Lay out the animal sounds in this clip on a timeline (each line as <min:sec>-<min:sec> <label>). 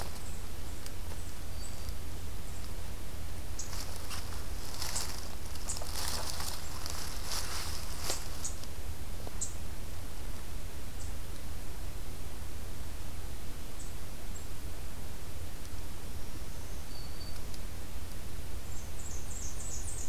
0:15.9-0:17.7 Black-throated Green Warbler (Setophaga virens)
0:18.6-0:20.1 Blackburnian Warbler (Setophaga fusca)